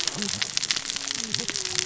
{"label": "biophony, cascading saw", "recorder": "SoundTrap 600 or HydroMoth"}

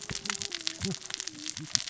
{"label": "biophony, cascading saw", "recorder": "SoundTrap 600 or HydroMoth"}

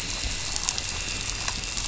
{"label": "anthrophony, boat engine", "recorder": "SoundTrap 500"}
{"label": "biophony", "recorder": "SoundTrap 500"}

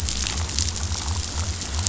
{"label": "biophony", "recorder": "SoundTrap 500"}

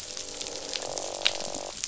{"label": "biophony, croak", "recorder": "SoundTrap 500"}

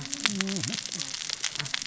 {"label": "biophony, cascading saw", "recorder": "SoundTrap 600 or HydroMoth"}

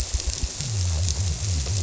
{"label": "biophony", "recorder": "SoundTrap 300"}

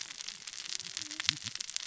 {"label": "biophony, cascading saw", "recorder": "SoundTrap 600 or HydroMoth"}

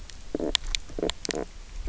{"label": "biophony, stridulation", "recorder": "SoundTrap 300"}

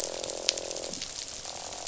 {"label": "biophony, croak", "recorder": "SoundTrap 500"}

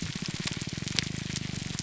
{"label": "biophony, grouper groan", "recorder": "SoundTrap 300"}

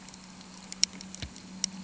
{"label": "anthrophony, boat engine", "recorder": "HydroMoth"}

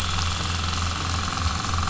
{"label": "anthrophony, boat engine", "recorder": "SoundTrap 300"}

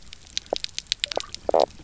{"label": "biophony, knock croak", "recorder": "SoundTrap 300"}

